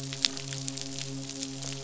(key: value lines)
label: biophony, midshipman
recorder: SoundTrap 500